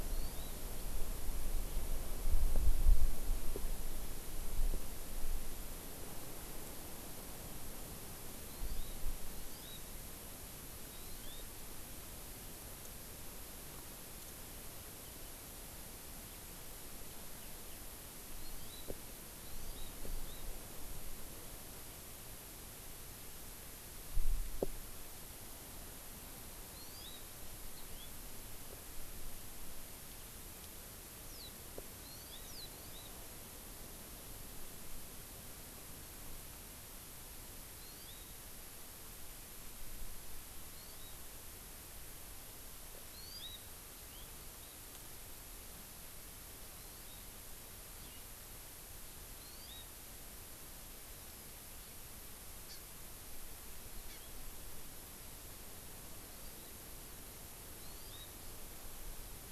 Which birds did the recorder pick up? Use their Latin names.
Chlorodrepanis virens, Haemorhous mexicanus, Zosterops japonicus